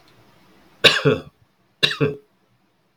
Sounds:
Cough